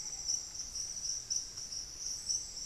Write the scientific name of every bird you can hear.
Patagioenas subvinacea